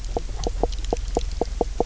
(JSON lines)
{"label": "biophony, knock croak", "recorder": "SoundTrap 300"}